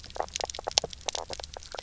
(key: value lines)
label: biophony, knock croak
recorder: SoundTrap 300